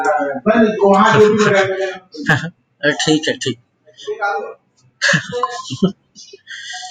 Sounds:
Laughter